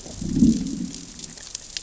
{"label": "biophony, growl", "recorder": "SoundTrap 600 or HydroMoth"}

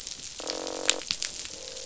{"label": "biophony, croak", "recorder": "SoundTrap 500"}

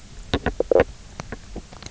{"label": "biophony, knock croak", "recorder": "SoundTrap 300"}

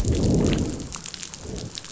{"label": "biophony, growl", "recorder": "SoundTrap 500"}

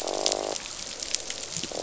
{"label": "biophony, croak", "recorder": "SoundTrap 500"}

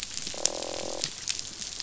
{"label": "biophony, croak", "recorder": "SoundTrap 500"}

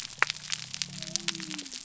{"label": "biophony", "recorder": "SoundTrap 300"}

